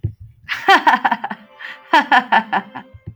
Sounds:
Laughter